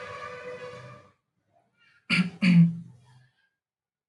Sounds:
Throat clearing